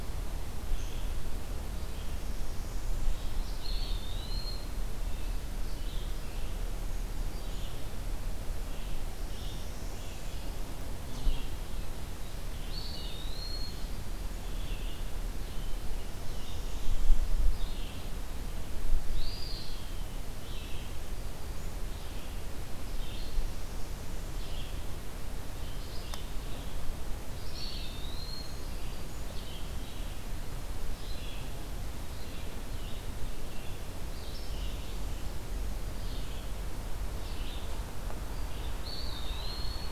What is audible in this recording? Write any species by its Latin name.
Vireo olivaceus, Setophaga americana, Contopus virens